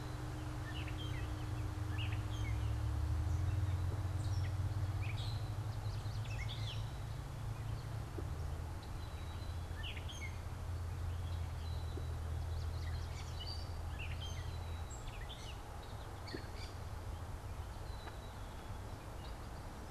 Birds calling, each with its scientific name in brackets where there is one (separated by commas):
Black-capped Chickadee (Poecile atricapillus), Gray Catbird (Dumetella carolinensis), Yellow Warbler (Setophaga petechia)